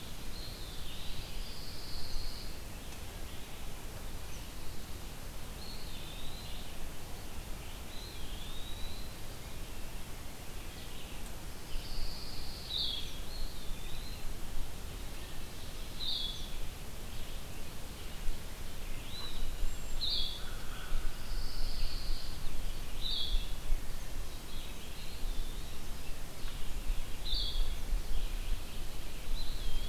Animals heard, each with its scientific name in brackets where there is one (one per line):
Blue-headed Vireo (Vireo solitarius)
Cedar Waxwing (Bombycilla cedrorum)
Pine Warbler (Setophaga pinus)
American Crow (Corvus brachyrhynchos)
Eastern Wood-Pewee (Contopus virens)
Hooded Merganser (Lophodytes cucullatus)